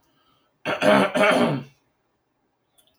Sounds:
Throat clearing